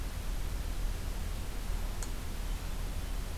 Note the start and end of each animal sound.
2.3s-3.4s: Hermit Thrush (Catharus guttatus)

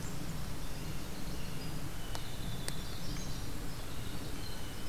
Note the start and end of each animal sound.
0.2s-4.9s: Winter Wren (Troglodytes hiemalis)
0.7s-2.6s: Blue Jay (Cyanocitta cristata)
2.7s-3.5s: Magnolia Warbler (Setophaga magnolia)

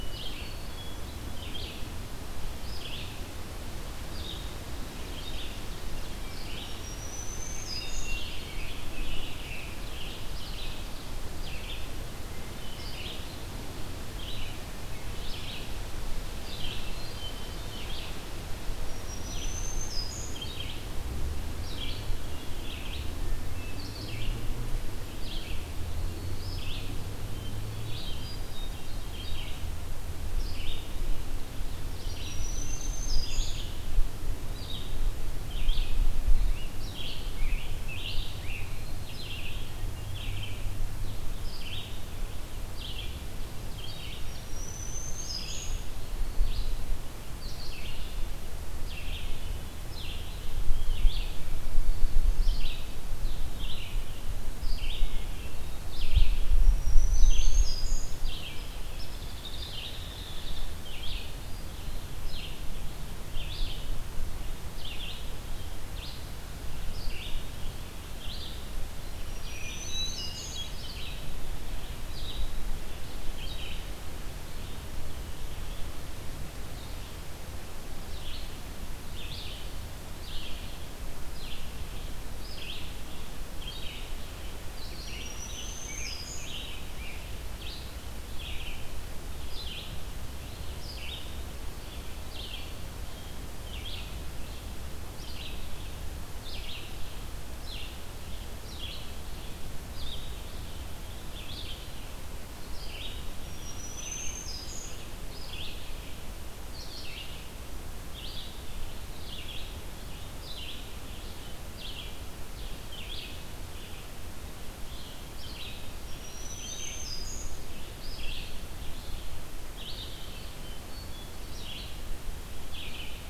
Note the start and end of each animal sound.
0.0s-1.2s: Hermit Thrush (Catharus guttatus)
0.0s-6.7s: Red-eyed Vireo (Vireo olivaceus)
6.6s-8.2s: Black-throated Green Warbler (Setophaga virens)
7.7s-10.2s: Scarlet Tanager (Piranga olivacea)
8.0s-65.3s: Red-eyed Vireo (Vireo olivaceus)
8.2s-10.6s: Ovenbird (Seiurus aurocapilla)
16.5s-17.9s: Hermit Thrush (Catharus guttatus)
18.5s-20.4s: Black-throated Green Warbler (Setophaga virens)
23.0s-24.0s: Hermit Thrush (Catharus guttatus)
27.2s-29.8s: Hermit Thrush (Catharus guttatus)
31.4s-33.5s: Ovenbird (Seiurus aurocapilla)
31.8s-33.6s: Black-throated Green Warbler (Setophaga virens)
36.2s-38.9s: Scarlet Tanager (Piranga olivacea)
44.0s-45.8s: Black-throated Green Warbler (Setophaga virens)
56.3s-58.2s: Black-throated Green Warbler (Setophaga virens)
58.9s-60.8s: Hairy Woodpecker (Dryobates villosus)
65.8s-123.3s: Red-eyed Vireo (Vireo olivaceus)
68.8s-70.7s: Black-throated Green Warbler (Setophaga virens)
69.6s-70.8s: Hermit Thrush (Catharus guttatus)
84.8s-86.5s: Black-throated Green Warbler (Setophaga virens)
84.9s-87.3s: Scarlet Tanager (Piranga olivacea)
103.2s-104.9s: Black-throated Green Warbler (Setophaga virens)
115.8s-117.6s: Black-throated Green Warbler (Setophaga virens)
120.3s-121.8s: Hermit Thrush (Catharus guttatus)

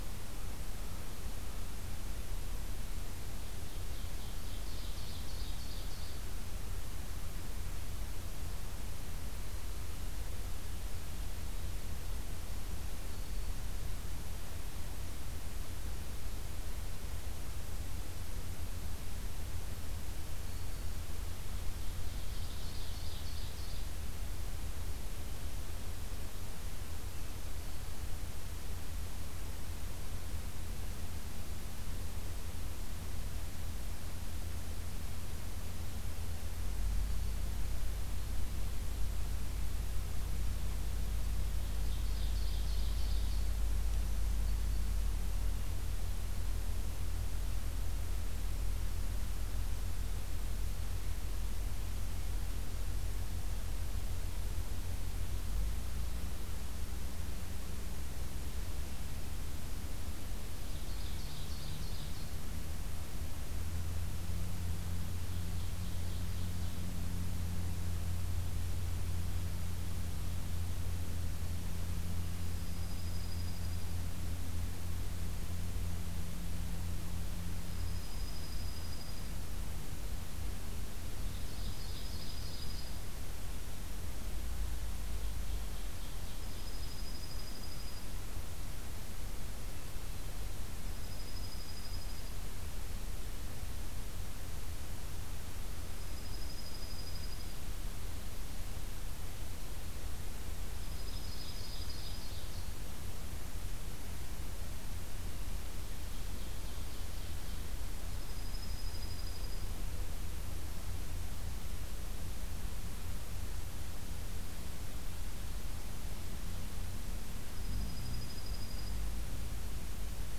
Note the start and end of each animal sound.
3.5s-6.2s: Ovenbird (Seiurus aurocapilla)
20.2s-21.2s: Black-throated Green Warbler (Setophaga virens)
21.9s-23.9s: Ovenbird (Seiurus aurocapilla)
36.8s-37.6s: Black-throated Green Warbler (Setophaga virens)
41.6s-43.4s: Ovenbird (Seiurus aurocapilla)
43.7s-44.9s: Black-throated Green Warbler (Setophaga virens)
60.6s-62.3s: Ovenbird (Seiurus aurocapilla)
65.1s-66.9s: Ovenbird (Seiurus aurocapilla)
72.4s-73.9s: Dark-eyed Junco (Junco hyemalis)
77.5s-79.4s: Dark-eyed Junco (Junco hyemalis)
81.3s-83.1s: Ovenbird (Seiurus aurocapilla)
81.5s-83.1s: Dark-eyed Junco (Junco hyemalis)
85.1s-86.9s: Ovenbird (Seiurus aurocapilla)
86.3s-88.0s: Dark-eyed Junco (Junco hyemalis)
90.7s-92.5s: Dark-eyed Junco (Junco hyemalis)
95.9s-97.6s: Dark-eyed Junco (Junco hyemalis)
100.6s-102.4s: Dark-eyed Junco (Junco hyemalis)
100.8s-102.7s: Ovenbird (Seiurus aurocapilla)
105.9s-107.8s: Ovenbird (Seiurus aurocapilla)
108.1s-109.7s: Dark-eyed Junco (Junco hyemalis)
117.4s-119.1s: Dark-eyed Junco (Junco hyemalis)

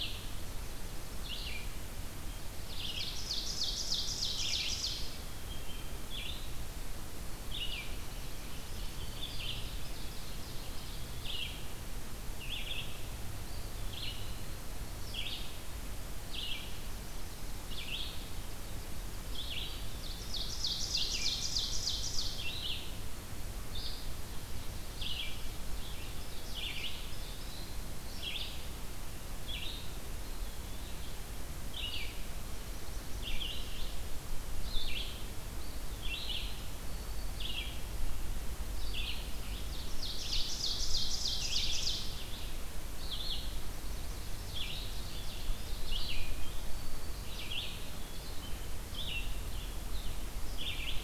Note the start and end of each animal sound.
0.0s-18.2s: Red-eyed Vireo (Vireo olivaceus)
2.6s-5.2s: Ovenbird (Seiurus aurocapilla)
7.5s-11.8s: Ovenbird (Seiurus aurocapilla)
8.5s-9.7s: Eastern Wood-Pewee (Contopus virens)
13.1s-15.1s: Eastern Wood-Pewee (Contopus virens)
16.5s-17.6s: Yellow-rumped Warbler (Setophaga coronata)
19.1s-51.0s: Red-eyed Vireo (Vireo olivaceus)
19.8s-22.5s: Ovenbird (Seiurus aurocapilla)
25.8s-27.8s: Ovenbird (Seiurus aurocapilla)
25.9s-27.9s: Eastern Wood-Pewee (Contopus virens)
30.1s-31.1s: Eastern Wood-Pewee (Contopus virens)
32.3s-33.9s: Yellow-rumped Warbler (Setophaga coronata)
35.4s-36.7s: Eastern Wood-Pewee (Contopus virens)
36.8s-37.5s: Black-throated Green Warbler (Setophaga virens)
39.5s-42.3s: Ovenbird (Seiurus aurocapilla)
43.3s-44.4s: Yellow-rumped Warbler (Setophaga coronata)
44.4s-46.2s: Ovenbird (Seiurus aurocapilla)
44.8s-46.1s: Eastern Wood-Pewee (Contopus virens)
46.4s-47.4s: Black-throated Green Warbler (Setophaga virens)
47.7s-48.5s: Eastern Wood-Pewee (Contopus virens)

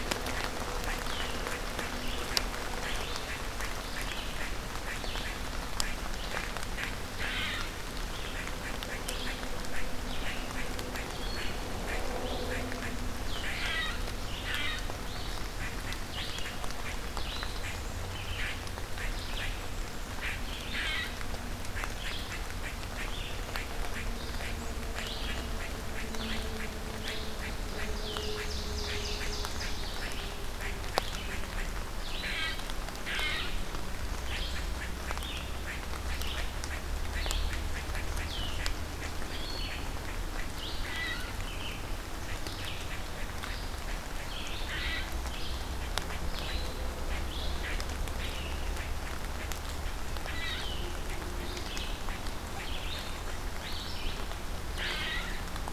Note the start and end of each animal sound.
0.0s-5.4s: Red-eyed Vireo (Vireo olivaceus)
0.0s-55.7s: unknown mammal
5.9s-55.7s: Red-eyed Vireo (Vireo olivaceus)
27.7s-30.1s: Ovenbird (Seiurus aurocapilla)

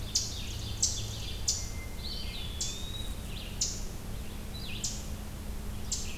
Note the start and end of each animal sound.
0.0s-1.5s: Ovenbird (Seiurus aurocapilla)
0.0s-6.2s: Eastern Chipmunk (Tamias striatus)
0.0s-6.2s: Red-eyed Vireo (Vireo olivaceus)
1.8s-3.3s: Eastern Wood-Pewee (Contopus virens)

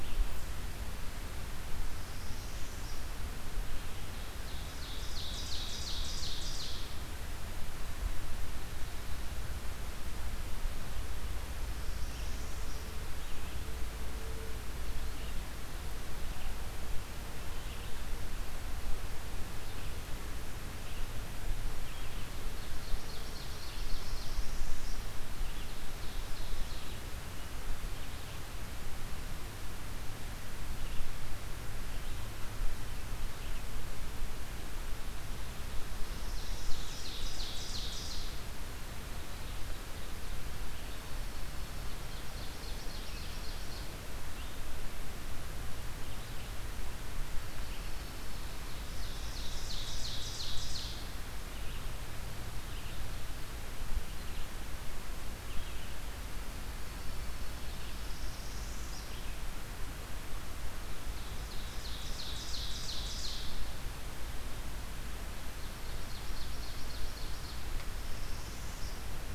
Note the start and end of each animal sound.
1.9s-3.1s: Northern Parula (Setophaga americana)
4.2s-7.0s: Ovenbird (Seiurus aurocapilla)
11.5s-13.0s: Northern Parula (Setophaga americana)
13.1s-63.8s: Red-eyed Vireo (Vireo olivaceus)
21.9s-24.7s: Ovenbird (Seiurus aurocapilla)
24.0s-25.0s: Northern Parula (Setophaga americana)
25.5s-27.2s: Northern Parula (Setophaga americana)
35.9s-38.5s: Ovenbird (Seiurus aurocapilla)
40.5s-42.1s: Dark-eyed Junco (Junco hyemalis)
42.1s-43.9s: Ovenbird (Seiurus aurocapilla)
48.7s-51.5s: Ovenbird (Seiurus aurocapilla)
56.6s-57.8s: Dark-eyed Junco (Junco hyemalis)
57.7s-59.1s: Northern Parula (Setophaga americana)
60.7s-63.6s: Ovenbird (Seiurus aurocapilla)
65.5s-67.6s: Ovenbird (Seiurus aurocapilla)
67.8s-69.1s: Northern Parula (Setophaga americana)

